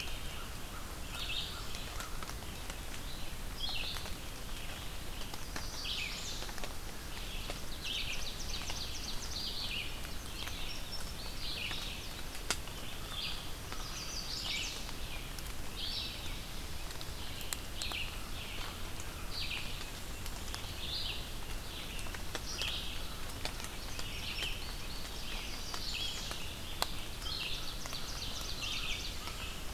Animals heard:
Ovenbird (Seiurus aurocapilla)
Chestnut-sided Warbler (Setophaga pensylvanica)
Red-eyed Vireo (Vireo olivaceus)
American Crow (Corvus brachyrhynchos)
Indigo Bunting (Passerina cyanea)

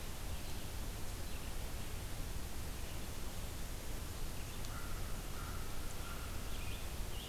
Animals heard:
Scarlet Tanager (Piranga olivacea)
American Crow (Corvus brachyrhynchos)

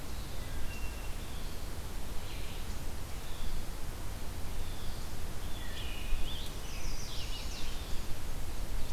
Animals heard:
Wood Thrush (Hylocichla mustelina)
American Robin (Turdus migratorius)
Chestnut-sided Warbler (Setophaga pensylvanica)

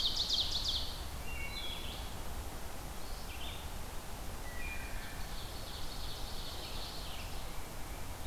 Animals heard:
Red-eyed Vireo (Vireo olivaceus)
Ovenbird (Seiurus aurocapilla)
Wood Thrush (Hylocichla mustelina)

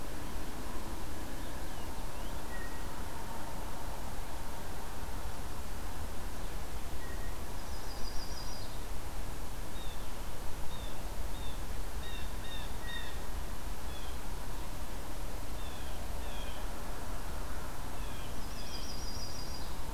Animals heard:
Purple Finch (Haemorhous purpureus)
Yellow-rumped Warbler (Setophaga coronata)
Blue Jay (Cyanocitta cristata)

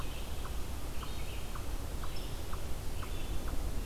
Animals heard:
unknown mammal
Red-eyed Vireo (Vireo olivaceus)

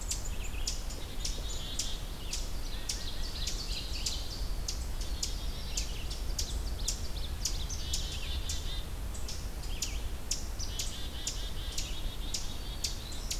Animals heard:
Red-eyed Vireo (Vireo olivaceus)
Black-capped Chickadee (Poecile atricapillus)
Black-throated Blue Warbler (Setophaga caerulescens)
Ovenbird (Seiurus aurocapilla)

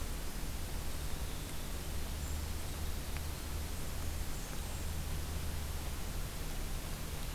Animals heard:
Golden-crowned Kinglet (Regulus satrapa)
Winter Wren (Troglodytes hiemalis)
Black-and-white Warbler (Mniotilta varia)

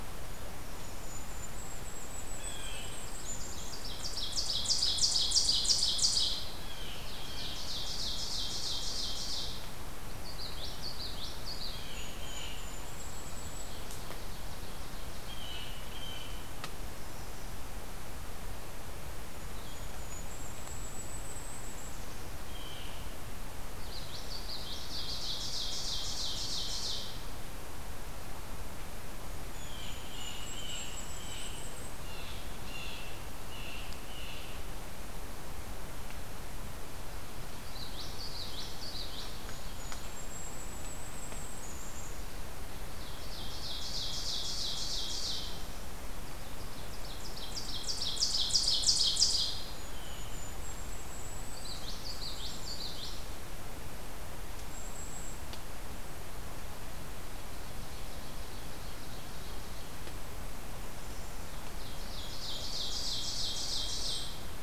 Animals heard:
Blue Jay (Cyanocitta cristata)
Ovenbird (Seiurus aurocapilla)
Golden-crowned Kinglet (Regulus satrapa)
Blue-headed Vireo (Vireo solitarius)
Common Yellowthroat (Geothlypis trichas)

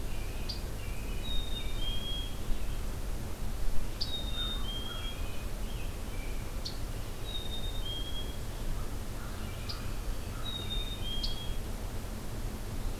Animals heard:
Black-capped Chickadee (Poecile atricapillus)
American Robin (Turdus migratorius)
Scarlet Tanager (Piranga olivacea)
American Crow (Corvus brachyrhynchos)

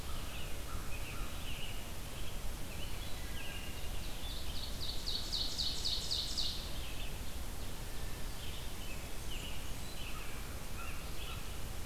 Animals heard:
American Crow (Corvus brachyrhynchos)
Ovenbird (Seiurus aurocapilla)
Blackburnian Warbler (Setophaga fusca)
American Robin (Turdus migratorius)
Wood Thrush (Hylocichla mustelina)

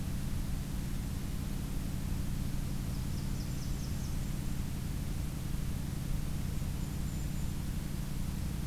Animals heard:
Blackburnian Warbler (Setophaga fusca)
Golden-crowned Kinglet (Regulus satrapa)

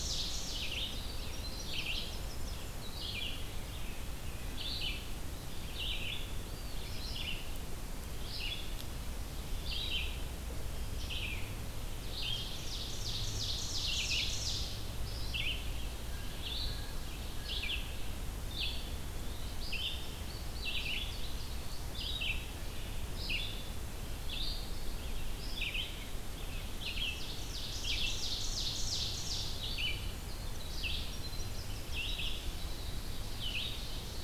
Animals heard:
Winter Wren (Troglodytes hiemalis)
Eastern Wood-Pewee (Contopus virens)
Red-eyed Vireo (Vireo olivaceus)
Indigo Bunting (Passerina cyanea)
Ovenbird (Seiurus aurocapilla)

